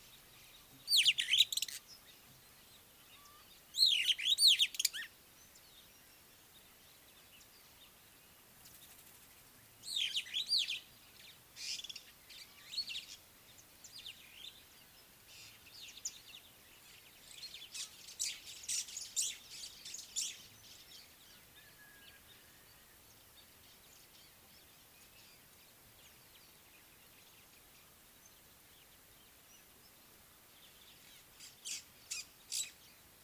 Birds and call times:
Superb Starling (Lamprotornis superbus): 4.5s, 10.3s
White-browed Sparrow-Weaver (Plocepasser mahali): 18.8s, 32.2s

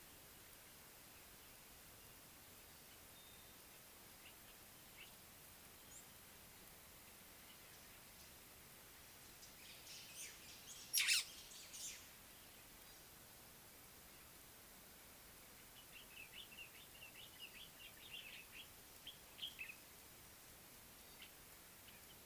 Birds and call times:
White-browed Sparrow-Weaver (Plocepasser mahali): 11.1s
Common Bulbul (Pycnonotus barbatus): 17.7s

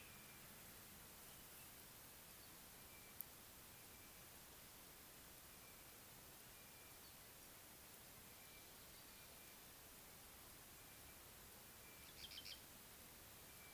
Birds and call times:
Rattling Cisticola (Cisticola chiniana): 12.3s

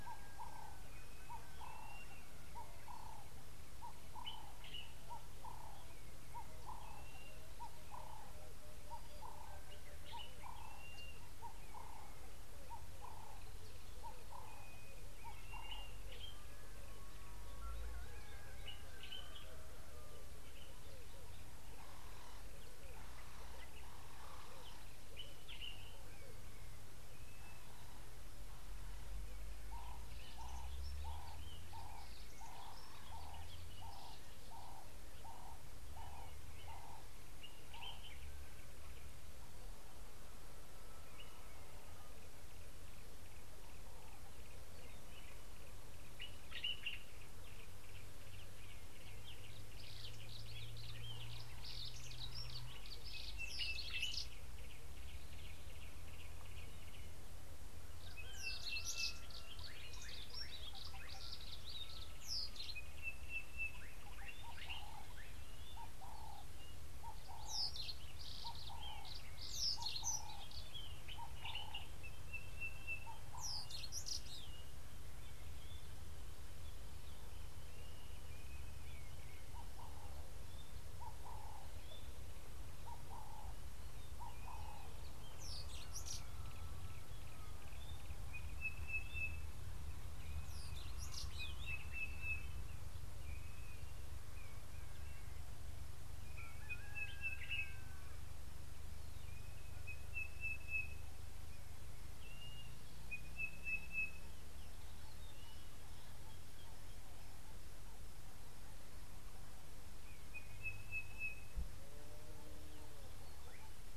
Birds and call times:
Blue-naped Mousebird (Urocolius macrourus): 1.9s, 11.0s
Common Bulbul (Pycnonotus barbatus): 4.6s, 25.6s, 46.6s
Ring-necked Dove (Streptopelia capicola): 5.0s, 12.9s, 33.3s, 67.1s, 81.4s
Yellow-breasted Apalis (Apalis flavida): 48.6s
Brimstone Canary (Crithagra sulphurata): 51.7s, 69.6s, 85.5s
Sulphur-breasted Bushshrike (Telophorus sulfureopectus): 53.4s, 58.7s, 63.1s, 72.5s, 88.8s, 97.0s, 103.6s, 110.9s
Slate-colored Boubou (Laniarius funebris): 60.4s

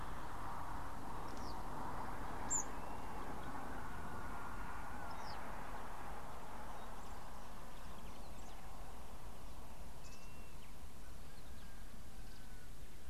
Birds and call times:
Blue-naped Mousebird (Urocolius macrourus): 10.3s

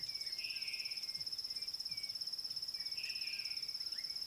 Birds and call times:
African Gray Hornbill (Lophoceros nasutus): 1.9s

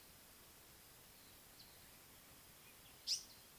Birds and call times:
African Paradise-Flycatcher (Terpsiphone viridis): 3.1s

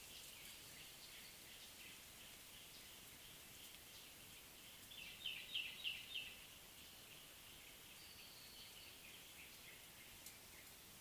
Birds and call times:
Common Bulbul (Pycnonotus barbatus): 5.6s

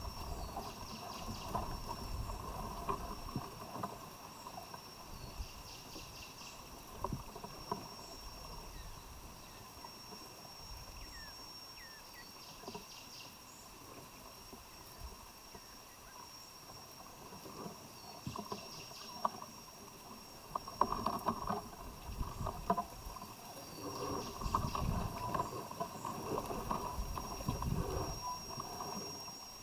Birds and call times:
Cinnamon Bracken-Warbler (Bradypterus cinnamomeus): 5.8s
African Emerald Cuckoo (Chrysococcyx cupreus): 11.1s

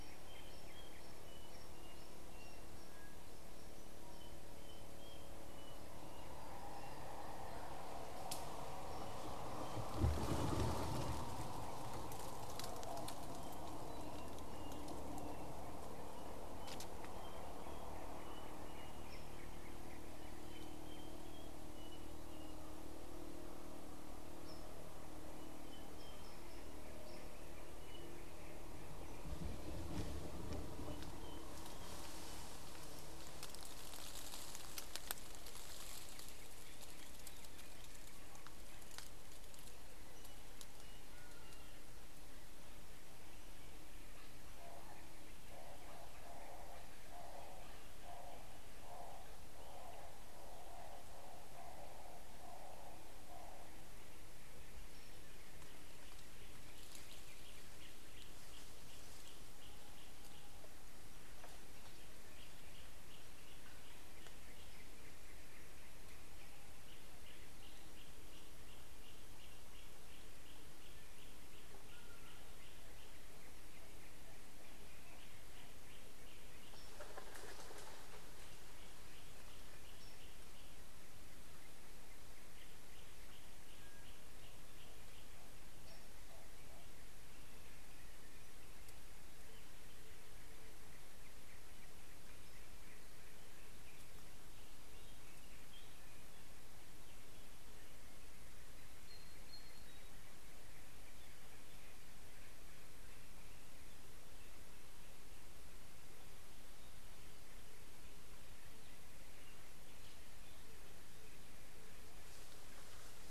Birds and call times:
Hartlaub's Turaco (Tauraco hartlaubi): 49.1s
Yellow-breasted Apalis (Apalis flavida): 58.2s, 70.1s
Shelley's Starling (Lamprotornis shelleyi): 99.2s

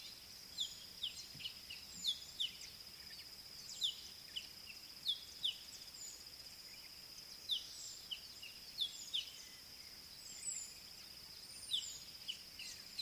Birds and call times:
Scarlet-chested Sunbird (Chalcomitra senegalensis): 2.1s, 5.5s

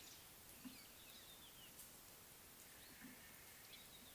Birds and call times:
Red-backed Scrub-Robin (Cercotrichas leucophrys): 1.4s

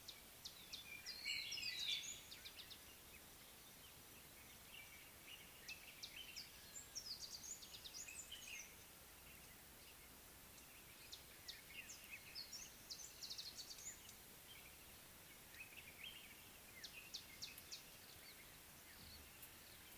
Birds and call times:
White-browed Robin-Chat (Cossypha heuglini): 1.5s
Amethyst Sunbird (Chalcomitra amethystina): 7.2s

